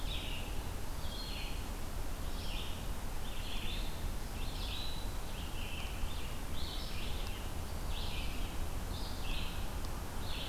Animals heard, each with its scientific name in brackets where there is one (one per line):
Red-eyed Vireo (Vireo olivaceus)